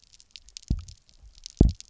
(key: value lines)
label: biophony, double pulse
recorder: SoundTrap 300